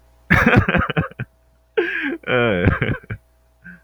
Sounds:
Laughter